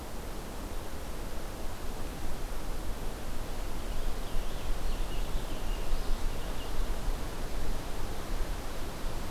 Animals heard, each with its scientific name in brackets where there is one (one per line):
Purple Finch (Haemorhous purpureus)